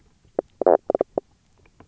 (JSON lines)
{"label": "biophony, knock croak", "recorder": "SoundTrap 300"}